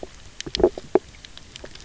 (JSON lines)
{"label": "biophony, knock croak", "recorder": "SoundTrap 300"}